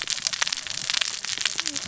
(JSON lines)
{"label": "biophony, cascading saw", "recorder": "SoundTrap 600 or HydroMoth"}